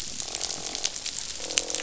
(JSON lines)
{"label": "biophony, croak", "recorder": "SoundTrap 500"}